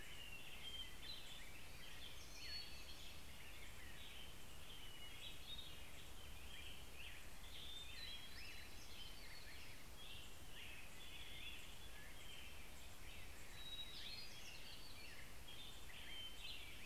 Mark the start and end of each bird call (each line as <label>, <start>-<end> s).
American Robin (Turdus migratorius), 0.0-16.9 s
Hermit Thrush (Catharus guttatus), 0.0-16.9 s
Hermit Warbler (Setophaga occidentalis), 0.0-16.9 s